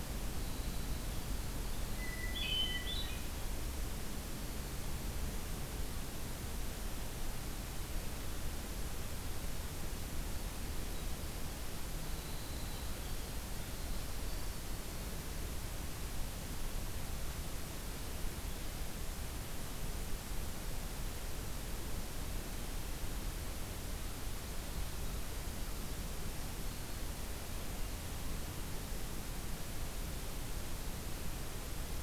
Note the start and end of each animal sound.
0.0s-2.9s: Winter Wren (Troglodytes hiemalis)
1.9s-3.4s: Hermit Thrush (Catharus guttatus)
10.7s-15.3s: Winter Wren (Troglodytes hiemalis)

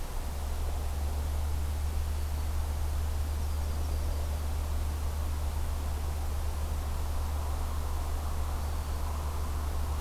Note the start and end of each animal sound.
2.9s-4.8s: Yellow-rumped Warbler (Setophaga coronata)

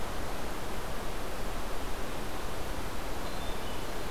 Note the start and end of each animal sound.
3.1s-4.1s: Hermit Thrush (Catharus guttatus)

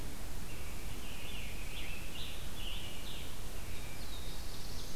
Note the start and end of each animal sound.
0.3s-3.5s: Scarlet Tanager (Piranga olivacea)
3.5s-5.0s: Black-throated Blue Warbler (Setophaga caerulescens)
4.3s-5.0s: Ovenbird (Seiurus aurocapilla)

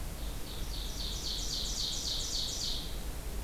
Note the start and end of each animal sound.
0.1s-3.0s: Ovenbird (Seiurus aurocapilla)

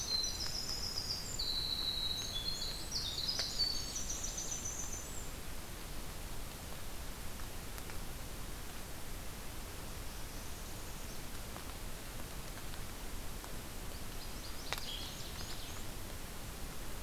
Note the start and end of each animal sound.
0.0s-5.3s: Winter Wren (Troglodytes hiemalis)
9.7s-11.2s: Northern Parula (Setophaga americana)
13.8s-15.7s: Northern Waterthrush (Parkesia noveboracensis)
14.4s-15.9s: Black-and-white Warbler (Mniotilta varia)

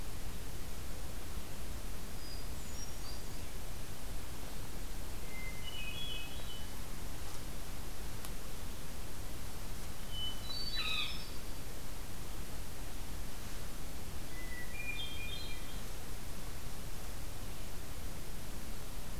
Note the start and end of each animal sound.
1.9s-4.0s: Hermit Thrush (Catharus guttatus)
5.1s-6.9s: Hermit Thrush (Catharus guttatus)
9.8s-11.8s: Hermit Thrush (Catharus guttatus)
10.5s-11.2s: Veery (Catharus fuscescens)
14.3s-16.0s: Hermit Thrush (Catharus guttatus)

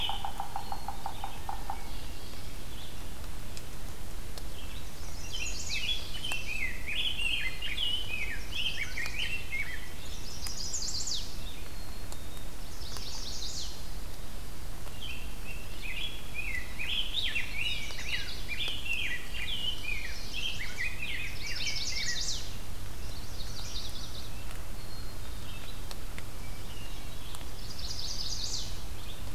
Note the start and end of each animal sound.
0.0s-0.5s: Rose-breasted Grosbeak (Pheucticus ludovicianus)
0.0s-1.9s: Yellow-bellied Sapsucker (Sphyrapicus varius)
0.3s-1.5s: Black-capped Chickadee (Poecile atricapillus)
1.0s-4.9s: Red-eyed Vireo (Vireo olivaceus)
1.6s-3.1s: Hermit Thrush (Catharus guttatus)
4.8s-5.9s: Chestnut-sided Warbler (Setophaga pensylvanica)
5.2s-10.0s: Rose-breasted Grosbeak (Pheucticus ludovicianus)
5.4s-6.7s: Common Yellowthroat (Geothlypis trichas)
7.1s-8.1s: Black-capped Chickadee (Poecile atricapillus)
8.3s-9.4s: Chestnut-sided Warbler (Setophaga pensylvanica)
9.8s-13.2s: Red-eyed Vireo (Vireo olivaceus)
10.0s-11.3s: Chestnut-sided Warbler (Setophaga pensylvanica)
11.5s-12.5s: Black-capped Chickadee (Poecile atricapillus)
12.5s-13.9s: Chestnut-sided Warbler (Setophaga pensylvanica)
14.9s-22.5s: Rose-breasted Grosbeak (Pheucticus ludovicianus)
17.6s-18.7s: Chestnut-sided Warbler (Setophaga pensylvanica)
19.8s-20.9s: Chestnut-sided Warbler (Setophaga pensylvanica)
19.8s-20.9s: Black-capped Chickadee (Poecile atricapillus)
21.2s-22.5s: Chestnut-sided Warbler (Setophaga pensylvanica)
22.9s-24.5s: Chestnut-sided Warbler (Setophaga pensylvanica)
23.4s-29.3s: Red-eyed Vireo (Vireo olivaceus)
24.7s-25.7s: Black-capped Chickadee (Poecile atricapillus)
26.2s-27.3s: Hermit Thrush (Catharus guttatus)
27.5s-28.8s: Chestnut-sided Warbler (Setophaga pensylvanica)

